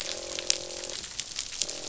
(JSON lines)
{"label": "biophony, croak", "recorder": "SoundTrap 500"}